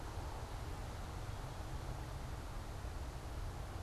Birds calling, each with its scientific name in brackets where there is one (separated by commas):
American Robin (Turdus migratorius)